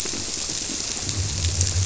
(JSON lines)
{"label": "biophony", "recorder": "SoundTrap 300"}